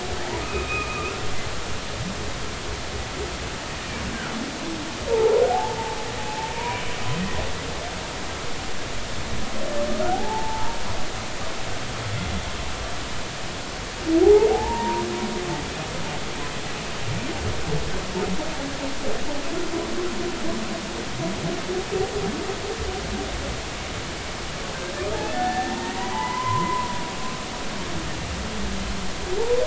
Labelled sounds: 0.4	1.1	humpback whale, 1.1 to 2.8 kHz
5.1	5.8	humpback whale, 0.80 to 1.0 kHz
6.3	6.8	humpback whale, 0.80 to 1.0 kHz
10.1	10.8	humpback whale, 0.80 to 1.0 kHz
14.2	15.1	humpback whale, 0.80 to 1.0 kHz
25.3	27.1	humpback whale, 0.83 to 2.1 kHz

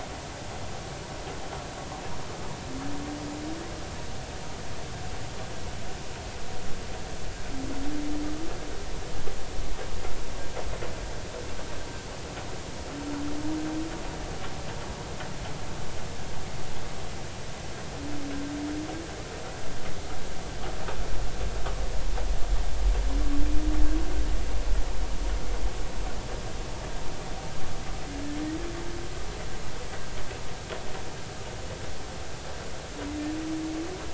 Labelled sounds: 28.1	28.4	humpback whale, 1.6 to 1.9 kHz

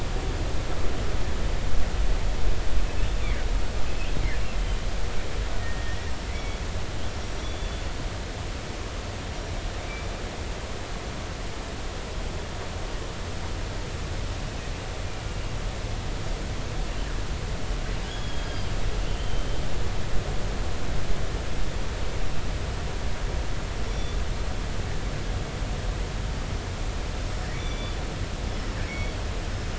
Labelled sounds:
5.6	6.1	killer whale, northern resident, G clan, 1.8 to 2.0 kHz
6.2	7.8	killer whale, northern resident, G clan, GI subclan, call N23i, 2.0 to 5.9 kHz
18.0	19.5	killer whale, northern resident, 2.7 to 3.5 kHz
23.9	24.2	killer whale, northern resident, G clan, GI subclan, call N23i, 3.3 to 3.6 kHz
27.5	28.0	killer whale, northern resident, G clan, GI subclan, call N23i, 2.2 to 3.6 kHz
28.9	29.2	killer whale, northern resident, G clan, GI subclan, call N23i, 2.0 to 4.5 kHz

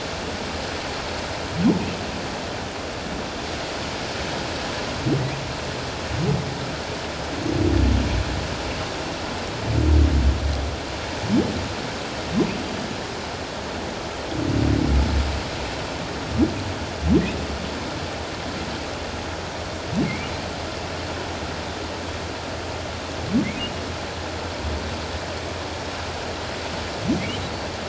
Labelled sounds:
20.0	20.3	humpback whale, 2.0 to 2.4 kHz

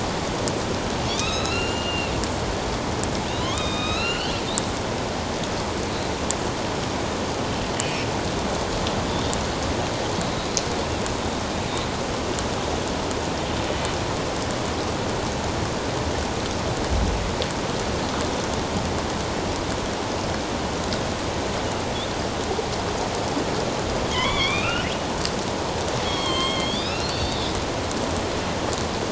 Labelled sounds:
1.1	2.1	killer whale, northern resident, A clan, AB subclan, 1.2 to 7.2 kHz
3.3	4.4	killer whale, northern resident, A clan, AB subclan, 0.97 to 4.2 kHz
11.2	11.4	killer whale, northern resident, A clan, AB subclan, 3.7 to 3.8 kHz
13.7	13.9	killer whale, northern resident, A clan, AB subclan, 3.0 to 3.1 kHz
24.1	25.0	killer whale, northern resident, A clan, AB subclan, 0.94 to 3.9 kHz
26.0	27.5	killer whale, northern resident, A clan, AB subclan, 1.0 to 7.8 kHz

